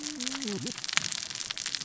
{"label": "biophony, cascading saw", "recorder": "SoundTrap 600 or HydroMoth"}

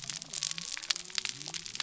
{"label": "biophony", "recorder": "SoundTrap 300"}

